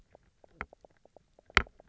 {"label": "biophony, knock croak", "recorder": "SoundTrap 300"}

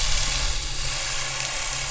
{"label": "anthrophony, boat engine", "recorder": "SoundTrap 500"}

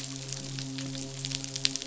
{"label": "biophony, midshipman", "recorder": "SoundTrap 500"}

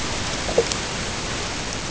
{"label": "ambient", "recorder": "HydroMoth"}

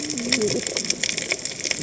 {"label": "biophony, cascading saw", "recorder": "HydroMoth"}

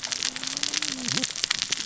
{"label": "biophony, cascading saw", "recorder": "SoundTrap 600 or HydroMoth"}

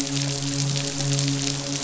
{"label": "biophony, midshipman", "recorder": "SoundTrap 500"}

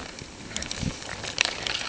{"label": "ambient", "recorder": "HydroMoth"}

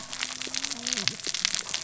{"label": "biophony, cascading saw", "recorder": "SoundTrap 600 or HydroMoth"}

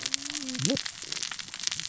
{"label": "biophony, cascading saw", "recorder": "SoundTrap 600 or HydroMoth"}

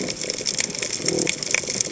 {"label": "biophony", "recorder": "HydroMoth"}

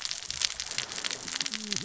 {"label": "biophony, cascading saw", "recorder": "SoundTrap 600 or HydroMoth"}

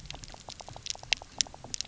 {"label": "biophony, knock croak", "recorder": "SoundTrap 300"}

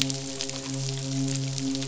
{"label": "biophony, midshipman", "recorder": "SoundTrap 500"}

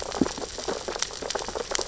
{"label": "biophony, sea urchins (Echinidae)", "recorder": "SoundTrap 600 or HydroMoth"}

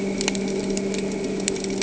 {"label": "anthrophony, boat engine", "recorder": "HydroMoth"}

